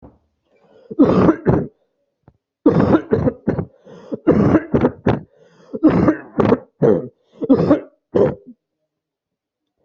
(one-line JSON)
{"expert_labels": [{"quality": "ok", "cough_type": "wet", "dyspnea": false, "wheezing": false, "stridor": false, "choking": false, "congestion": false, "nothing": true, "diagnosis": "lower respiratory tract infection", "severity": "mild"}], "age": 21, "gender": "male", "respiratory_condition": true, "fever_muscle_pain": true, "status": "symptomatic"}